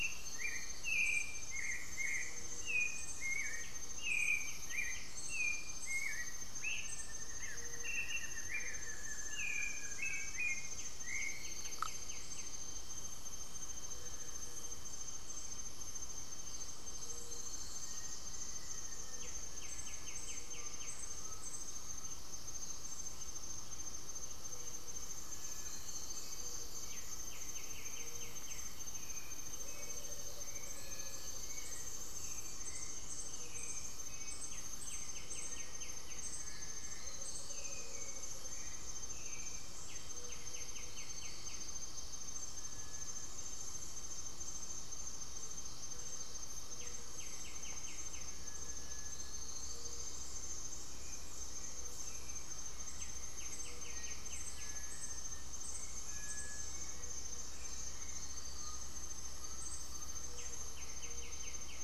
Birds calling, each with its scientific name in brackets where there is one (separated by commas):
White-winged Becard (Pachyramphus polychopterus), Black-faced Antthrush (Formicarius analis), Gray-fronted Dove (Leptotila rufaxilla), Buff-throated Woodcreeper (Xiphorhynchus guttatus), Cinereous Tinamou (Crypturellus cinereus), Amazonian Motmot (Momotus momota), Undulated Tinamou (Crypturellus undulatus), Hauxwell's Thrush (Turdus hauxwelli)